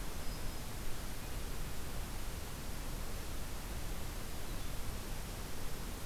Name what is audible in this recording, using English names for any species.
Black-throated Green Warbler, Red-eyed Vireo